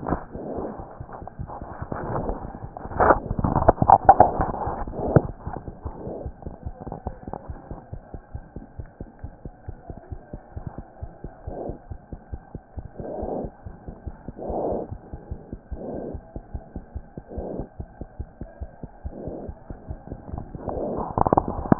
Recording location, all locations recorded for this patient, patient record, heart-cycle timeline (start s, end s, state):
aortic valve (AV)
aortic valve (AV)+mitral valve (MV)
#Age: Infant
#Sex: Female
#Height: 68.0 cm
#Weight: 9.07 kg
#Pregnancy status: False
#Murmur: Absent
#Murmur locations: nan
#Most audible location: nan
#Systolic murmur timing: nan
#Systolic murmur shape: nan
#Systolic murmur grading: nan
#Systolic murmur pitch: nan
#Systolic murmur quality: nan
#Diastolic murmur timing: nan
#Diastolic murmur shape: nan
#Diastolic murmur grading: nan
#Diastolic murmur pitch: nan
#Diastolic murmur quality: nan
#Outcome: Normal
#Campaign: 2015 screening campaign
0.00	7.37	unannotated
7.37	7.48	diastole
7.48	7.56	S1
7.56	7.69	systole
7.69	7.75	S2
7.75	7.92	diastole
7.92	8.00	S1
8.00	8.14	systole
8.14	8.17	S2
8.17	8.34	diastole
8.34	8.41	S1
8.41	8.54	systole
8.54	8.63	S2
8.63	8.79	diastole
8.79	8.84	S1
8.84	9.00	systole
9.00	9.04	S2
9.04	9.22	diastole
9.22	9.30	S1
9.30	9.44	systole
9.44	9.50	S2
9.50	9.67	diastole
9.67	9.75	S1
9.75	9.89	systole
9.89	9.93	S2
9.93	10.10	diastole
10.10	10.18	S1
10.18	10.32	systole
10.32	10.39	S2
10.39	10.64	diastole
10.64	10.70	S1
10.70	10.77	systole
10.77	10.83	S2
10.83	11.01	diastole
11.01	11.10	S1
11.10	11.23	systole
11.23	11.28	S2
11.28	11.43	diastole
11.43	21.79	unannotated